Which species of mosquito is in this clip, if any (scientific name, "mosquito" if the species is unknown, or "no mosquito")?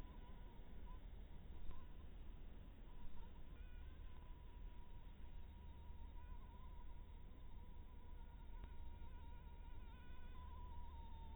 mosquito